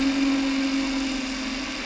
{"label": "anthrophony, boat engine", "recorder": "SoundTrap 300"}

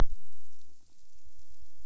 {"label": "biophony", "recorder": "SoundTrap 300"}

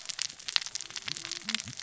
{"label": "biophony, cascading saw", "recorder": "SoundTrap 600 or HydroMoth"}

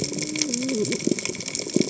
{"label": "biophony, cascading saw", "recorder": "HydroMoth"}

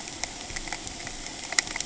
{"label": "ambient", "recorder": "HydroMoth"}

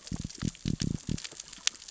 {"label": "biophony", "recorder": "SoundTrap 600 or HydroMoth"}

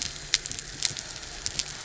{"label": "anthrophony, boat engine", "recorder": "SoundTrap 300"}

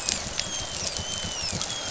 {"label": "biophony, dolphin", "recorder": "SoundTrap 500"}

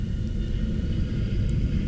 {"label": "anthrophony, boat engine", "recorder": "SoundTrap 300"}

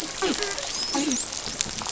{"label": "biophony, dolphin", "recorder": "SoundTrap 500"}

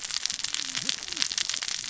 {"label": "biophony, cascading saw", "recorder": "SoundTrap 600 or HydroMoth"}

